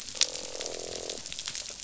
{"label": "biophony, croak", "recorder": "SoundTrap 500"}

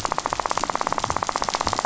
{"label": "biophony, rattle", "recorder": "SoundTrap 500"}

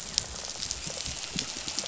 {"label": "biophony, dolphin", "recorder": "SoundTrap 500"}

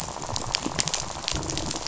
{"label": "biophony, rattle", "recorder": "SoundTrap 500"}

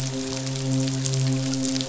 {"label": "biophony, midshipman", "recorder": "SoundTrap 500"}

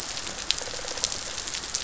{"label": "biophony", "recorder": "SoundTrap 500"}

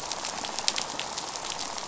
{"label": "biophony, rattle", "recorder": "SoundTrap 500"}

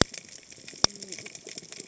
{"label": "biophony, cascading saw", "recorder": "HydroMoth"}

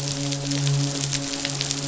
{"label": "biophony, midshipman", "recorder": "SoundTrap 500"}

